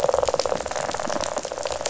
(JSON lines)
{"label": "biophony, rattle", "recorder": "SoundTrap 500"}